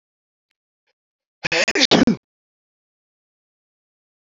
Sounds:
Sneeze